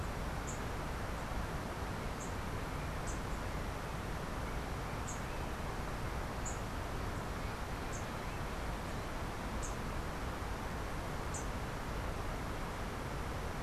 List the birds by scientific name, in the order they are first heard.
unidentified bird